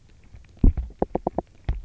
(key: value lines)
label: biophony, knock
recorder: SoundTrap 300